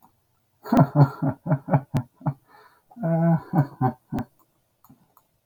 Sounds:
Laughter